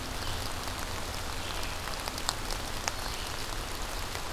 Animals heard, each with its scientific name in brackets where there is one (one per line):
Red-eyed Vireo (Vireo olivaceus)